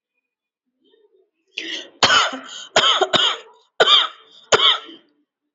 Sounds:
Cough